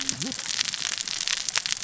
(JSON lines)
{"label": "biophony, cascading saw", "recorder": "SoundTrap 600 or HydroMoth"}